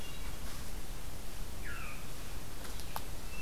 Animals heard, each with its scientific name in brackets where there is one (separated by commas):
Red-eyed Vireo (Vireo olivaceus), Veery (Catharus fuscescens), Hermit Thrush (Catharus guttatus)